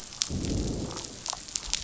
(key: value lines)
label: biophony, growl
recorder: SoundTrap 500